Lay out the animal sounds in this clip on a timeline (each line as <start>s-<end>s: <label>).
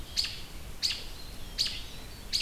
0.0s-2.4s: American Robin (Turdus migratorius)